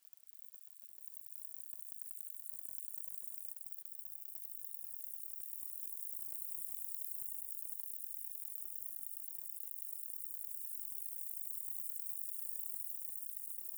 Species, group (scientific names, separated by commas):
Conocephalus dorsalis, Orthoptera